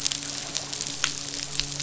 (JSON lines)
{"label": "biophony, midshipman", "recorder": "SoundTrap 500"}